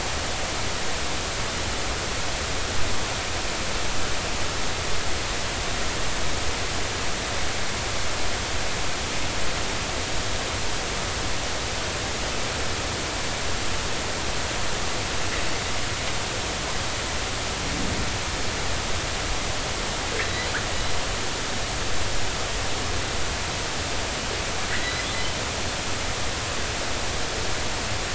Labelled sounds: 20.3	20.5	killer whale, northern resident, G clan, 3.8 to 4.1 kHz
24.7	25.1	killer whale, northern resident, G clan, 1.8 to 2.1 kHz

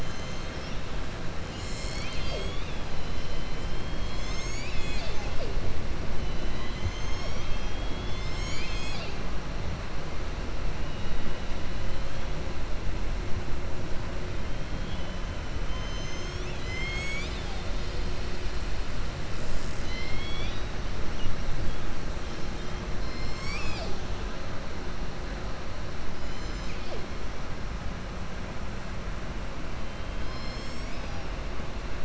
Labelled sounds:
0.0	0.8	killer whale, southern resident, 4.3 to 7.2 kHz

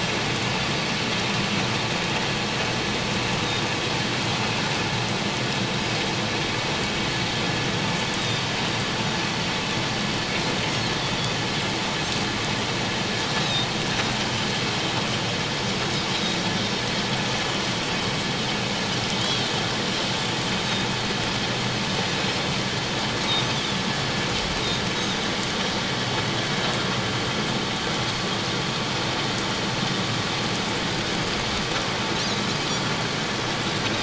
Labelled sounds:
13.4	13.7	Pacific white-sided dolphin, 3.6 to 3.9 kHz
19.2	19.5	Pacific white-sided dolphin, 3.1 to 3.4 kHz

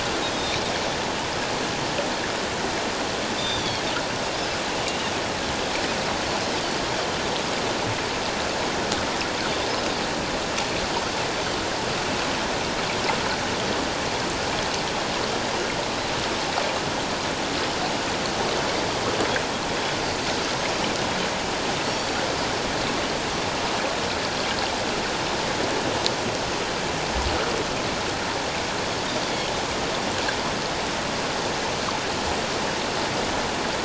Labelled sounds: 0.3	0.6	Pacific white-sided dolphin, 3.6 to 3.9 kHz
3.4	3.8	Pacific white-sided dolphin, 3.2 to 6.1 kHz
4.8	5.1	Pacific white-sided dolphin, 2.7 to 3.0 kHz
21.8	22.2	Pacific white-sided dolphin, 4.3 to 4.7 kHz

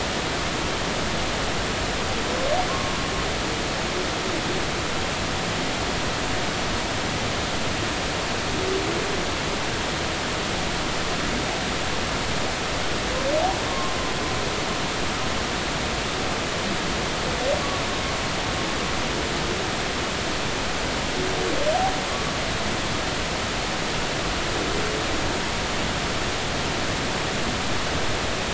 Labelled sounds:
2.7	3.0	humpback whale, 0.99 to 1.2 kHz
13.7	14.0	humpback whale, 1.0 to 1.2 kHz

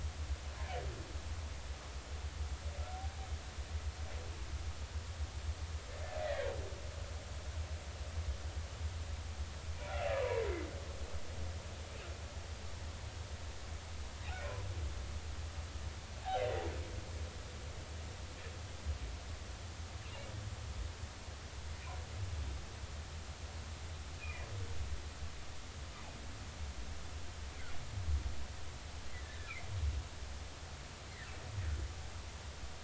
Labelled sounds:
6.2	6.5	humpback whale, 1.8 to 2.0 kHz
16.4	16.6	humpback whale, 1.9 to 2.1 kHz
24.2	24.5	humpback whale, 2.3 to 2.7 kHz
29.1	29.7	humpback whale, 1.6 to 2.6 kHz

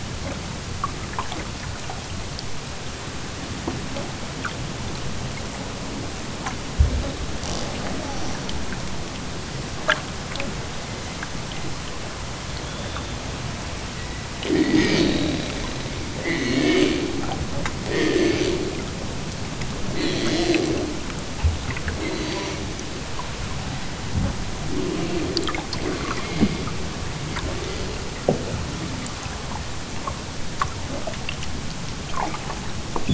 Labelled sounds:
7.2	8.5	killer whale, southern Alaska resident, 0 to 8.0 kHz
14.3	15.6	killer whale, southern Alaska resident, 0 to 7.0 kHz
16.1	17.3	killer whale, southern Alaska resident, 0 to 7.1 kHz
17.8	18.7	killer whale, southern Alaska resident, 0 to 8.0 kHz
19.8	21.0	killer whale, southern Alaska resident, 0 to 8.0 kHz
21.7	22.8	killer whale, southern Alaska resident, 0 to 7.6 kHz
24.6	26.7	killer whale, southern Alaska resident, 0 to 5.3 kHz
27.2	28.2	killer whale, southern Alaska resident, 0 to 5.2 kHz

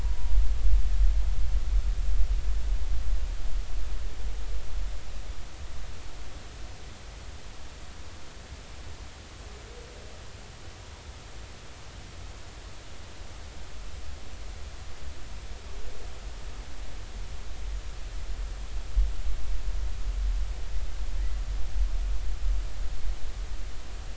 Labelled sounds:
0.0	0.4	humpback whale, 0.93 to 1.0 kHz

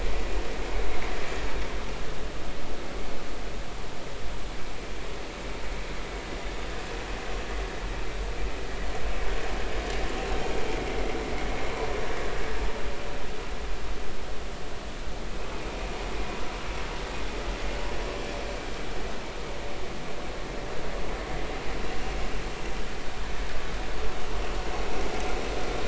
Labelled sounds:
15.5	15.8	vessel noise, 2.3 to 2.6 kHz

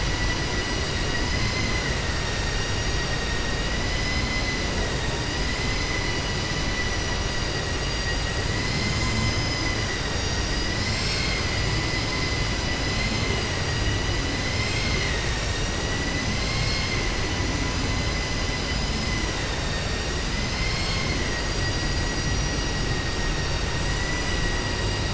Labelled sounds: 5.8	6.9	vessel noise, 1.9 to 4.0 kHz
23.9	24.4	vessel noise, 1.0 to 3.0 kHz

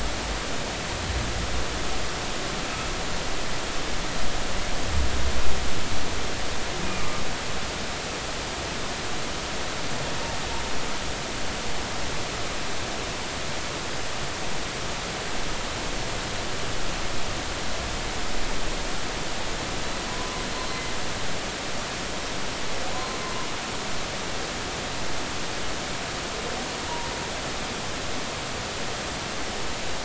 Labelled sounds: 6.8	7.1	humpback whale, 2.2 to 2.5 kHz
20.6	20.8	humpback whale, 4.1 to 4.2 kHz
22.9	23.2	humpback whale, 0.96 to 1.1 kHz

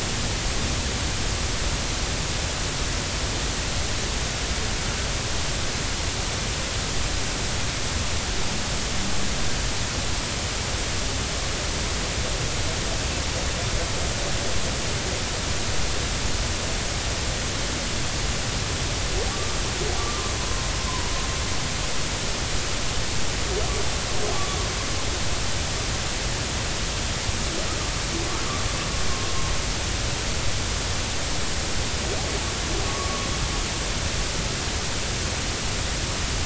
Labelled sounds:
19.3	19.6	humpback whale, 1.1 to 1.2 kHz
20.0	21.1	humpback whale, 0.93 to 1.2 kHz
32.9	33.3	humpback whale, 1.1 to 1.2 kHz

